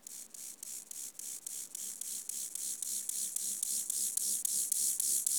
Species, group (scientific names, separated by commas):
Chorthippus mollis, Orthoptera